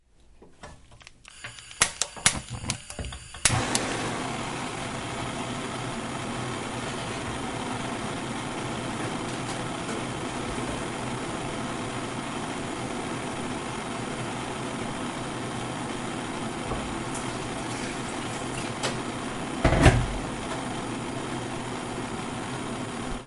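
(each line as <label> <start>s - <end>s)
A lighter is being lit. 1.6s - 3.9s
Fire crackling. 4.2s - 19.6s
The flame is blown out. 19.7s - 20.3s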